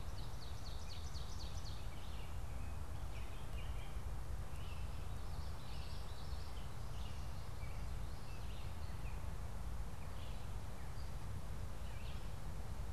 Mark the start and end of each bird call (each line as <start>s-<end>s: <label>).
0.0s-1.9s: Ovenbird (Seiurus aurocapilla)
0.0s-12.9s: Gray Catbird (Dumetella carolinensis)
0.0s-12.9s: Red-eyed Vireo (Vireo olivaceus)
5.1s-6.9s: Common Yellowthroat (Geothlypis trichas)